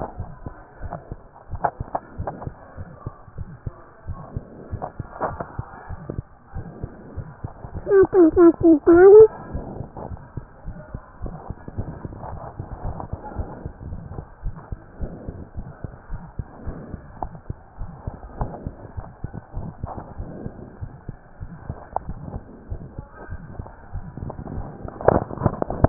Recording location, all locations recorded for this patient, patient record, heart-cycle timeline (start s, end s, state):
tricuspid valve (TV)
aortic valve (AV)+pulmonary valve (PV)+tricuspid valve (TV)+mitral valve (MV)
#Age: Child
#Sex: Male
#Height: 115.0 cm
#Weight: 23.1 kg
#Pregnancy status: False
#Murmur: Present
#Murmur locations: aortic valve (AV)+tricuspid valve (TV)
#Most audible location: tricuspid valve (TV)
#Systolic murmur timing: Early-systolic
#Systolic murmur shape: Decrescendo
#Systolic murmur grading: I/VI
#Systolic murmur pitch: Low
#Systolic murmur quality: Harsh
#Diastolic murmur timing: nan
#Diastolic murmur shape: nan
#Diastolic murmur grading: nan
#Diastolic murmur pitch: nan
#Diastolic murmur quality: nan
#Outcome: Normal
#Campaign: 2015 screening campaign
0.00	10.64	unannotated
10.64	10.78	S1
10.78	10.90	systole
10.90	11.00	S2
11.00	11.20	diastole
11.20	11.34	S1
11.34	11.48	systole
11.48	11.58	S2
11.58	11.74	diastole
11.74	11.86	S1
11.86	12.02	systole
12.02	12.14	S2
12.14	12.30	diastole
12.30	12.42	S1
12.42	12.58	systole
12.58	12.68	S2
12.68	12.84	diastole
12.84	12.96	S1
12.96	13.08	systole
13.08	13.20	S2
13.20	13.36	diastole
13.36	13.50	S1
13.50	13.64	systole
13.64	13.74	S2
13.74	13.88	diastole
13.88	14.00	S1
14.00	14.10	systole
14.10	14.24	S2
14.24	14.42	diastole
14.42	14.56	S1
14.56	14.68	systole
14.68	14.82	S2
14.82	14.98	diastole
14.98	15.12	S1
15.12	15.26	systole
15.26	15.38	S2
15.38	15.54	diastole
15.54	15.68	S1
15.68	15.82	systole
15.82	15.94	S2
15.94	16.10	diastole
16.10	16.24	S1
16.24	16.36	systole
16.36	16.46	S2
16.46	16.64	diastole
16.64	16.78	S1
16.78	16.90	systole
16.90	17.00	S2
17.00	17.20	diastole
17.20	17.34	S1
17.34	17.46	systole
17.46	17.60	S2
17.60	17.80	diastole
17.80	17.92	S1
17.92	18.05	systole
18.05	18.15	S2
18.15	18.38	diastole
18.38	18.52	S1
18.52	18.64	systole
18.64	18.76	S2
18.76	18.94	diastole
18.94	19.08	S1
19.08	19.22	systole
19.22	19.36	S2
19.36	19.54	diastole
19.54	19.68	S1
19.68	19.81	systole
19.81	19.98	S2
19.98	20.16	diastole
20.16	20.30	S1
20.30	20.44	systole
20.44	20.56	S2
20.56	20.76	diastole
20.76	20.92	S1
20.92	21.06	systole
21.06	21.20	S2
21.20	21.38	diastole
21.38	21.52	S1
21.52	21.66	systole
21.66	21.80	S2
21.80	22.00	diastole
22.00	22.16	S1
22.16	22.32	systole
22.32	22.46	S2
22.46	22.64	diastole
22.64	22.82	S1
22.82	22.96	systole
22.96	23.10	S2
23.10	23.30	diastole
23.30	23.42	S1
23.42	23.56	systole
23.56	23.70	S2
23.70	25.89	unannotated